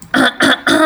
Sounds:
Throat clearing